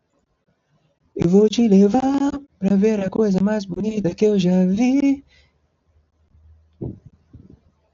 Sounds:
Sigh